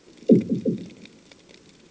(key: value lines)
label: anthrophony, bomb
recorder: HydroMoth